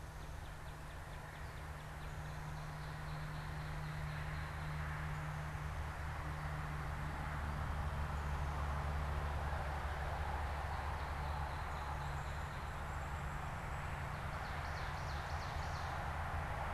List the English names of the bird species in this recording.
Northern Cardinal, Ovenbird